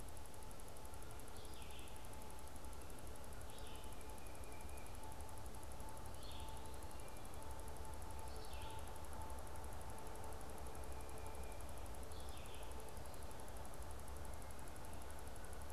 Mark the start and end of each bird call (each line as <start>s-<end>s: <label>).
0.0s-15.7s: Red-eyed Vireo (Vireo olivaceus)
3.8s-5.0s: Tufted Titmouse (Baeolophus bicolor)
6.5s-7.3s: Eastern Wood-Pewee (Contopus virens)
10.6s-11.8s: Tufted Titmouse (Baeolophus bicolor)